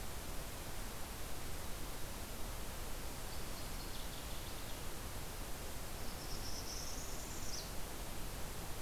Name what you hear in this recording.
Northern Waterthrush, Northern Parula